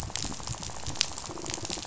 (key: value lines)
label: biophony, rattle
recorder: SoundTrap 500